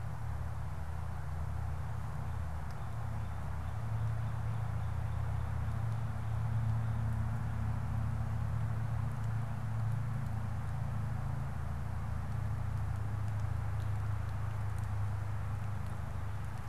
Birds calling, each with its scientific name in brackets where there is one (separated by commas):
Northern Cardinal (Cardinalis cardinalis)